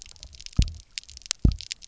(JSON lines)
{"label": "biophony, double pulse", "recorder": "SoundTrap 300"}